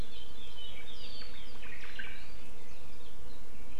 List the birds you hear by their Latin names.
Myadestes obscurus